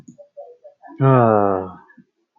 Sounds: Sigh